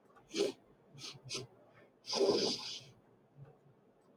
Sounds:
Sniff